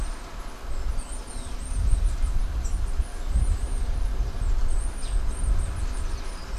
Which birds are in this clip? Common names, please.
Bananaquit, Silver-beaked Tanager